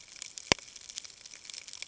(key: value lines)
label: ambient
recorder: HydroMoth